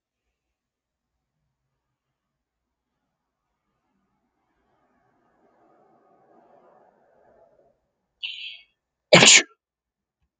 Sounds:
Sneeze